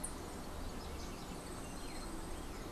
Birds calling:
Yellow-faced Grassquit (Tiaris olivaceus)

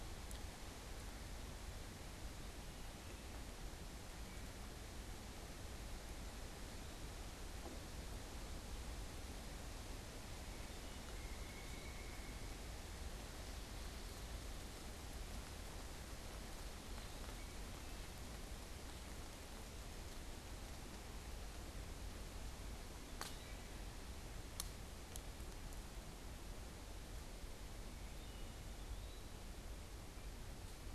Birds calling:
Wood Thrush (Hylocichla mustelina)
Eastern Wood-Pewee (Contopus virens)
unidentified bird

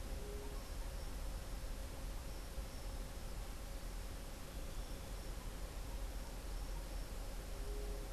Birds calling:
White-tipped Dove (Leptotila verreauxi)

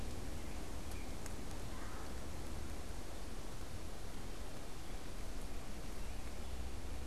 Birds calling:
American Robin (Turdus migratorius)
Red-bellied Woodpecker (Melanerpes carolinus)

